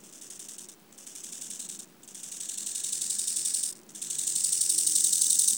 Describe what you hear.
Chorthippus biguttulus, an orthopteran